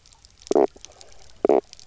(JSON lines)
{"label": "biophony, knock croak", "recorder": "SoundTrap 300"}